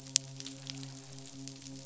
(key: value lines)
label: biophony, midshipman
recorder: SoundTrap 500